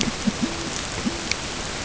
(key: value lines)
label: ambient
recorder: HydroMoth